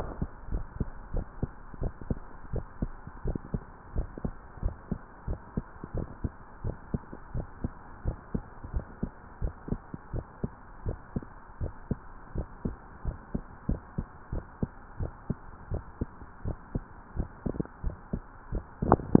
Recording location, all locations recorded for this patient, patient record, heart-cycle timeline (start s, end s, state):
tricuspid valve (TV)
aortic valve (AV)+pulmonary valve (PV)+tricuspid valve (TV)+mitral valve (MV)
#Age: Adolescent
#Sex: Male
#Height: 170.0 cm
#Weight: 72.4 kg
#Pregnancy status: False
#Murmur: Absent
#Murmur locations: nan
#Most audible location: nan
#Systolic murmur timing: nan
#Systolic murmur shape: nan
#Systolic murmur grading: nan
#Systolic murmur pitch: nan
#Systolic murmur quality: nan
#Diastolic murmur timing: nan
#Diastolic murmur shape: nan
#Diastolic murmur grading: nan
#Diastolic murmur pitch: nan
#Diastolic murmur quality: nan
#Outcome: Abnormal
#Campaign: 2015 screening campaign
0.00	0.18	unannotated
0.18	0.29	S2
0.29	0.50	diastole
0.50	0.66	S1
0.66	0.76	systole
0.76	0.88	S2
0.88	1.12	diastole
1.12	1.26	S1
1.26	1.38	systole
1.38	1.50	S2
1.50	1.78	diastole
1.78	1.94	S1
1.94	2.08	systole
2.08	2.22	S2
2.22	2.50	diastole
2.50	2.64	S1
2.64	2.78	systole
2.78	2.90	S2
2.90	3.22	diastole
3.22	3.40	S1
3.40	3.52	systole
3.52	3.62	S2
3.62	3.92	diastole
3.92	4.10	S1
4.10	4.22	systole
4.22	4.36	S2
4.36	4.64	diastole
4.64	4.78	S1
4.78	4.88	systole
4.88	4.98	S2
4.98	5.26	diastole
5.26	5.40	S1
5.40	5.56	systole
5.56	5.66	S2
5.66	5.94	diastole
5.94	6.08	S1
6.08	6.22	systole
6.22	6.32	S2
6.32	6.62	diastole
6.62	6.76	S1
6.76	6.90	systole
6.90	7.02	S2
7.02	7.32	diastole
7.32	7.46	S1
7.46	7.60	systole
7.60	7.72	S2
7.72	8.04	diastole
8.04	8.18	S1
8.18	8.30	systole
8.30	8.42	S2
8.42	8.70	diastole
8.70	8.84	S1
8.84	8.98	systole
8.98	9.10	S2
9.10	9.38	diastole
9.38	9.54	S1
9.54	9.68	systole
9.68	9.80	S2
9.80	10.12	diastole
10.12	10.26	S1
10.26	10.40	systole
10.40	10.52	S2
10.52	10.84	diastole
10.84	10.98	S1
10.98	11.14	systole
11.14	11.28	S2
11.28	11.60	diastole
11.60	11.72	S1
11.72	11.88	systole
11.88	11.98	S2
11.98	12.32	diastole
12.32	12.46	S1
12.46	12.64	systole
12.64	12.76	S2
12.76	13.04	diastole
13.04	13.16	S1
13.16	13.30	systole
13.30	13.42	S2
13.42	13.66	diastole
13.66	13.82	S1
13.82	13.94	systole
13.94	14.06	S2
14.06	14.32	diastole
14.32	14.44	S1
14.44	14.58	systole
14.58	14.70	S2
14.70	14.98	diastole
14.98	15.12	S1
15.12	15.26	systole
15.26	15.38	S2
15.38	15.70	diastole
15.70	15.84	S1
15.84	15.98	systole
15.98	16.10	S2
16.10	16.44	diastole
16.44	16.58	S1
16.58	16.74	systole
16.74	16.84	S2
16.84	17.16	diastole
17.16	17.30	S1
17.30	17.42	systole
17.42	17.54	S2
17.54	17.83	diastole
17.83	19.20	unannotated